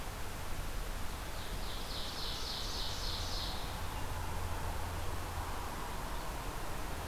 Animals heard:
Ovenbird (Seiurus aurocapilla)

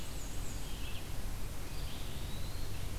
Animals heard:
Red-eyed Vireo (Vireo olivaceus)
Eastern Wood-Pewee (Contopus virens)
Black-and-white Warbler (Mniotilta varia)

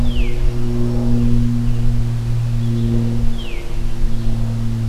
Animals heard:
Veery (Catharus fuscescens)

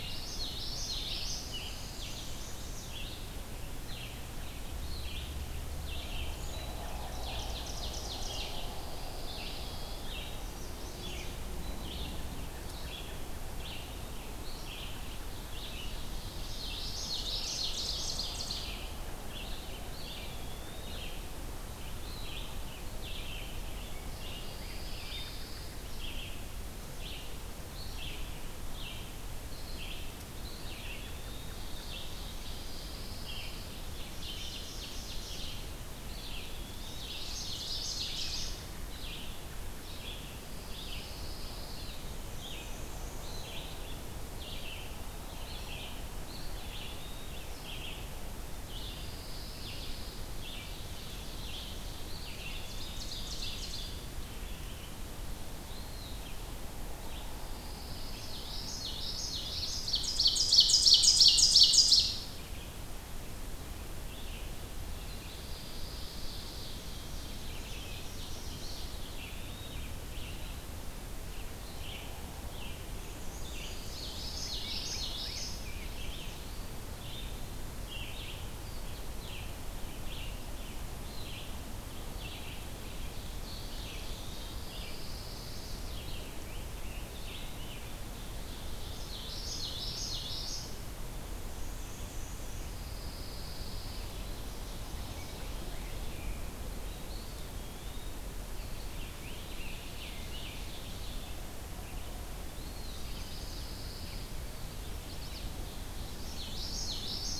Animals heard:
Black-and-white Warbler (Mniotilta varia)
Ovenbird (Seiurus aurocapilla)
Pine Warbler (Setophaga pinus)
Red-eyed Vireo (Vireo olivaceus)
Eastern Wood-Pewee (Contopus virens)
Common Yellowthroat (Geothlypis trichas)
Scarlet Tanager (Piranga olivacea)
Chestnut-sided Warbler (Setophaga pensylvanica)
Rose-breasted Grosbeak (Pheucticus ludovicianus)

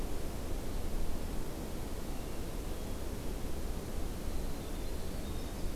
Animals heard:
Winter Wren (Troglodytes hiemalis)
Hermit Thrush (Catharus guttatus)

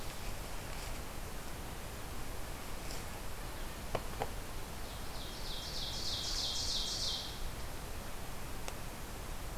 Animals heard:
Ovenbird (Seiurus aurocapilla)

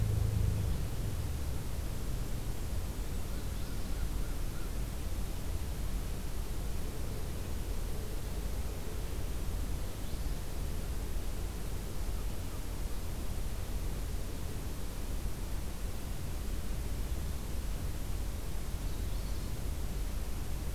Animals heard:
American Crow (Corvus brachyrhynchos)
Golden-crowned Kinglet (Regulus satrapa)
Magnolia Warbler (Setophaga magnolia)

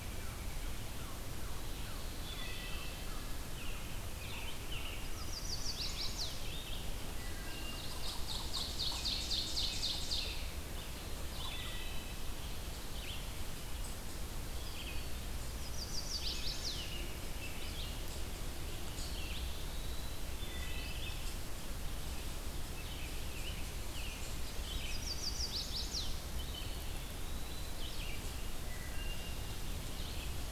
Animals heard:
Eastern Wood-Pewee (Contopus virens)
Black-throated Green Warbler (Setophaga virens)
Ovenbird (Seiurus aurocapilla)
Chestnut-sided Warbler (Setophaga pensylvanica)
American Robin (Turdus migratorius)
Wood Thrush (Hylocichla mustelina)
Red-eyed Vireo (Vireo olivaceus)

